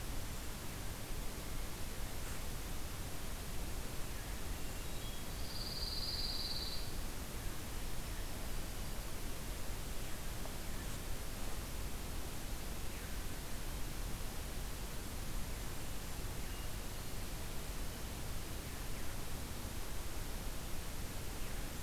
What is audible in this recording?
Hermit Thrush, Pine Warbler